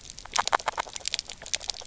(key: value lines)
label: biophony, grazing
recorder: SoundTrap 300